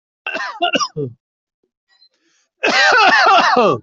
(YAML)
expert_labels:
- quality: good
  cough_type: dry
  dyspnea: false
  wheezing: false
  stridor: false
  choking: false
  congestion: false
  nothing: true
  diagnosis: upper respiratory tract infection
  severity: mild
age: 47
gender: male
respiratory_condition: false
fever_muscle_pain: false
status: healthy